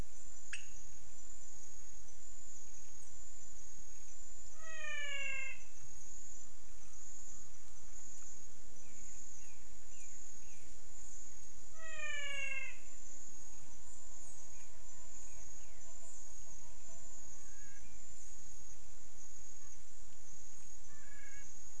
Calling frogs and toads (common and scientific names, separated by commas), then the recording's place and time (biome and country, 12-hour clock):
pointedbelly frog (Leptodactylus podicipinus), menwig frog (Physalaemus albonotatus)
Cerrado, Brazil, 6:00pm